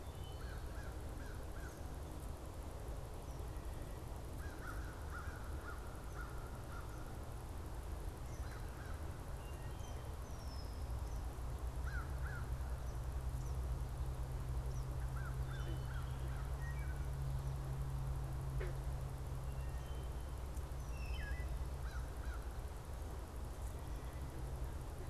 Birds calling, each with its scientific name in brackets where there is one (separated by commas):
American Crow (Corvus brachyrhynchos), Red-winged Blackbird (Agelaius phoeniceus), Wood Thrush (Hylocichla mustelina), Eastern Kingbird (Tyrannus tyrannus)